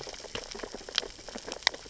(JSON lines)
{"label": "biophony, sea urchins (Echinidae)", "recorder": "SoundTrap 600 or HydroMoth"}